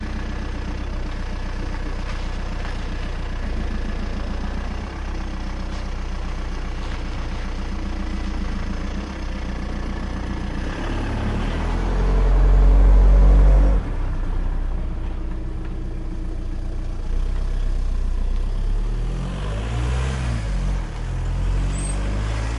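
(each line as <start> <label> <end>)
0.0 A car engine is idling with a steady, low-pitched mechanical hum. 11.6
0.0 Car engine idles as someone approaches and gets in, then revs up and the vehicle drives away. 22.6
2.1 Faint rustling footsteps gradually approach on a soft or uneven surface. 3.5
6.0 Faint rustling footsteps gradually approach on a soft or uneven surface. 8.4
11.0 The car engine revs slightly, indicating movement starting. 14.0
13.8 The engine sound gradually softens as the vehicle slows down or turns away. 18.6
18.9 An engine revs up strongly as a car drives away. 22.6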